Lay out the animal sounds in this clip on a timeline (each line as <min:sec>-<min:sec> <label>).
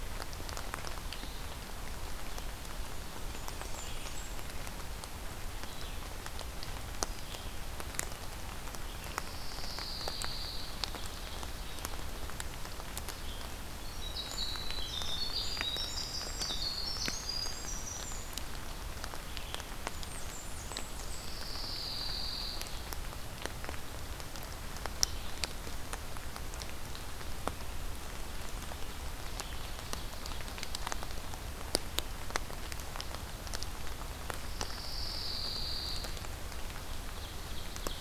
0:00.0-0:25.8 Red-eyed Vireo (Vireo olivaceus)
0:03.2-0:04.5 Blackburnian Warbler (Setophaga fusca)
0:08.8-0:11.0 Pine Warbler (Setophaga pinus)
0:13.4-0:18.7 Winter Wren (Troglodytes hiemalis)
0:19.9-0:21.3 Blackburnian Warbler (Setophaga fusca)
0:20.7-0:23.3 Pine Warbler (Setophaga pinus)
0:29.3-0:31.3 Ovenbird (Seiurus aurocapilla)
0:34.2-0:36.7 Pine Warbler (Setophaga pinus)
0:36.8-0:38.0 Ovenbird (Seiurus aurocapilla)